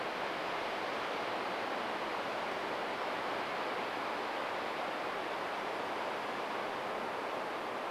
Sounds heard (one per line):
unidentified bird chip note